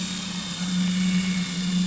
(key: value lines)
label: anthrophony, boat engine
recorder: SoundTrap 500